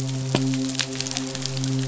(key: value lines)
label: biophony, midshipman
recorder: SoundTrap 500